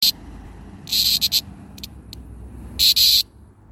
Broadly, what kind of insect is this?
cicada